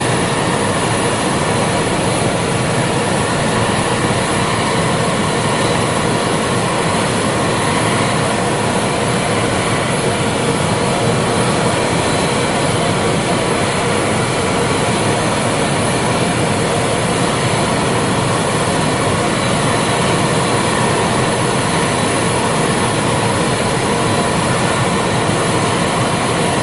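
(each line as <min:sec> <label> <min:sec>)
0:00.1 An airplane engine makes loud noises. 0:26.6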